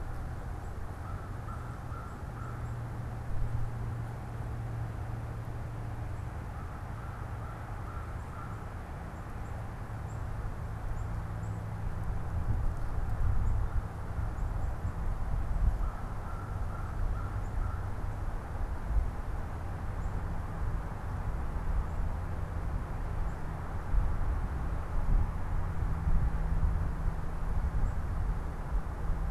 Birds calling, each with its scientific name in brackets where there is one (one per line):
American Crow (Corvus brachyrhynchos)
Black-capped Chickadee (Poecile atricapillus)